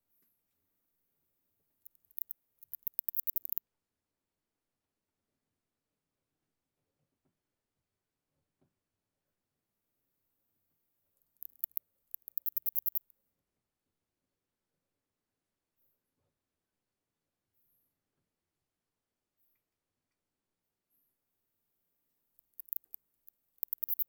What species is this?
Platycleis affinis